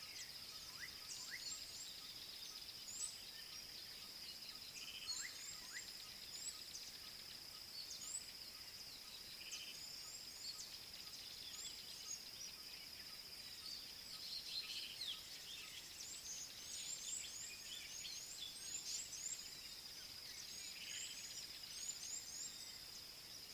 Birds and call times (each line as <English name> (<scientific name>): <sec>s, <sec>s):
Red-cheeked Cordonbleu (Uraeginthus bengalus): 3.0s, 17.2s, 22.1s